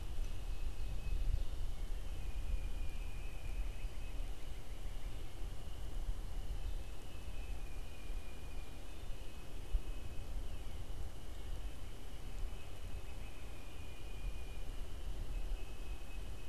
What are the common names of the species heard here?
Tufted Titmouse, unidentified bird